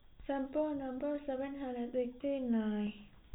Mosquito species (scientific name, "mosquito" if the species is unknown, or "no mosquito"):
no mosquito